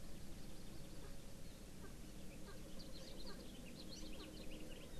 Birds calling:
Hawaii Amakihi (Chlorodrepanis virens), Erckel's Francolin (Pternistis erckelii), House Finch (Haemorhous mexicanus)

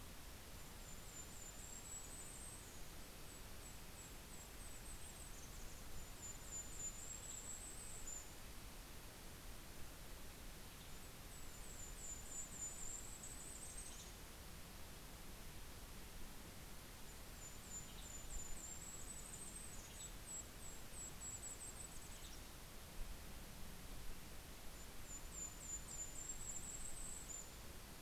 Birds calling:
Western Tanager (Piranga ludoviciana), Golden-crowned Kinglet (Regulus satrapa)

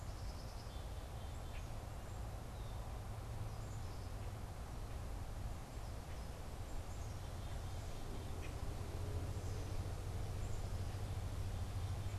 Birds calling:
Black-capped Chickadee (Poecile atricapillus), Common Grackle (Quiscalus quiscula)

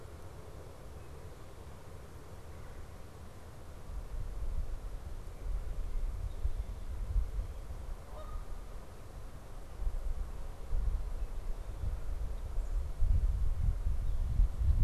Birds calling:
Red-bellied Woodpecker (Melanerpes carolinus), Canada Goose (Branta canadensis)

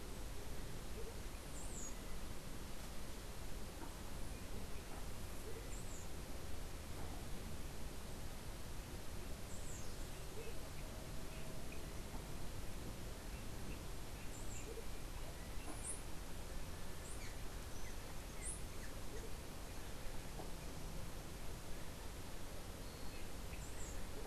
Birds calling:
unidentified bird

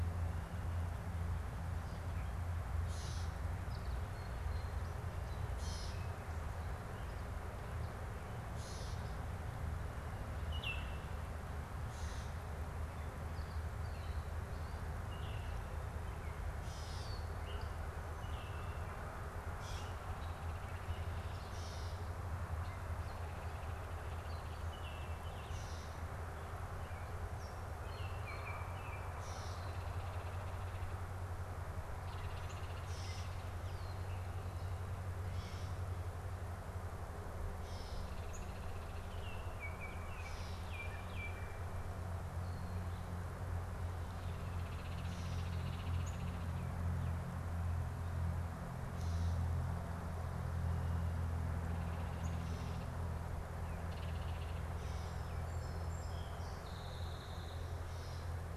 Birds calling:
unidentified bird, Gray Catbird (Dumetella carolinensis), Baltimore Oriole (Icterus galbula), Song Sparrow (Melospiza melodia)

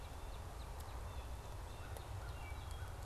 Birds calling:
Northern Cardinal (Cardinalis cardinalis), American Crow (Corvus brachyrhynchos), Wood Thrush (Hylocichla mustelina)

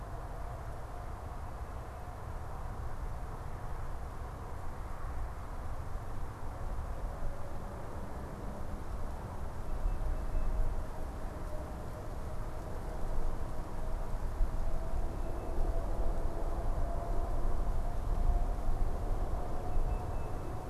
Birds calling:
Tufted Titmouse (Baeolophus bicolor)

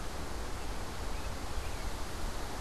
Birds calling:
American Robin (Turdus migratorius)

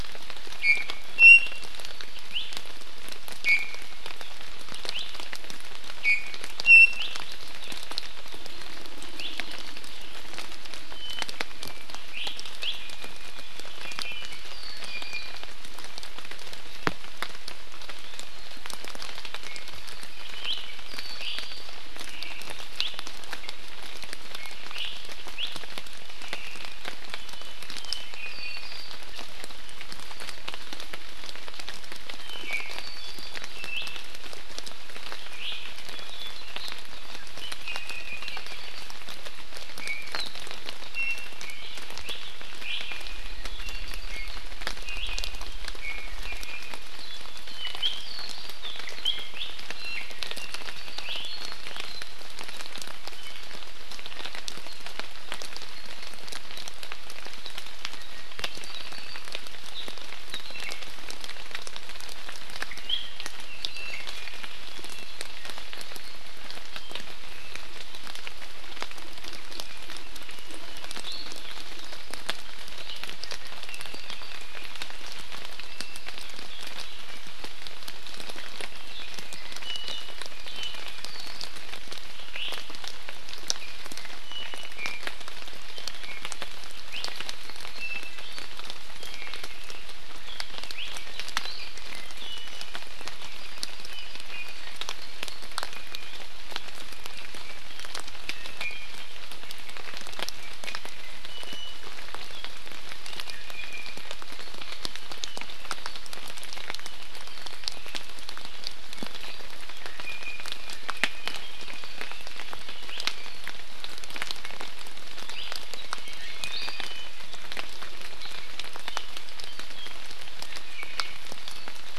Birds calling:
Iiwi (Drepanis coccinea), Omao (Myadestes obscurus), Apapane (Himatione sanguinea)

